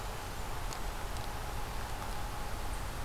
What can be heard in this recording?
forest ambience